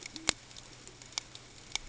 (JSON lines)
{"label": "ambient", "recorder": "HydroMoth"}